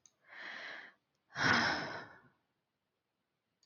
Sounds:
Sigh